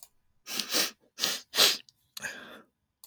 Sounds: Sniff